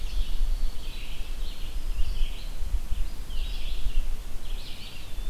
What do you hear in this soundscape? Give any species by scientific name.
Vireo olivaceus, Contopus virens